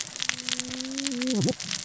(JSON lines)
{"label": "biophony, cascading saw", "recorder": "SoundTrap 600 or HydroMoth"}